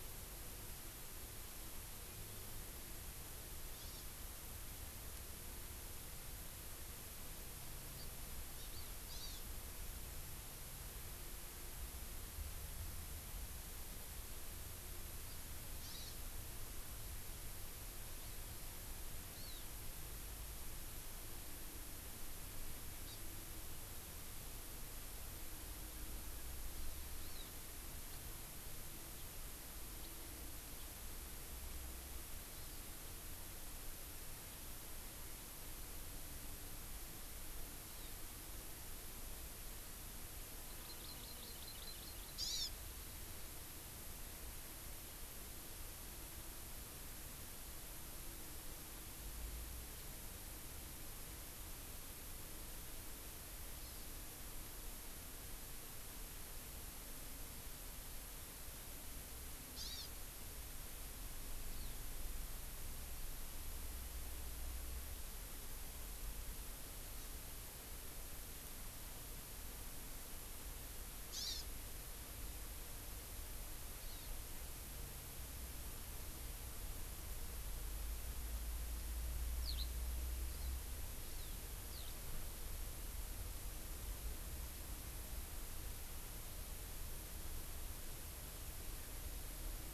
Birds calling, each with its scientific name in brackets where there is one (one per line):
Eurasian Skylark (Alauda arvensis)
Hawaii Amakihi (Chlorodrepanis virens)